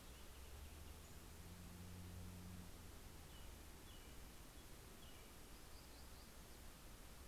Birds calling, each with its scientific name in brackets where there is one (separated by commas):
American Robin (Turdus migratorius), Pacific-slope Flycatcher (Empidonax difficilis), Black-throated Gray Warbler (Setophaga nigrescens)